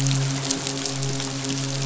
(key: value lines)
label: biophony, midshipman
recorder: SoundTrap 500